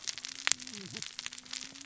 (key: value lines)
label: biophony, cascading saw
recorder: SoundTrap 600 or HydroMoth